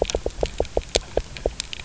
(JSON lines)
{"label": "biophony, knock", "recorder": "SoundTrap 300"}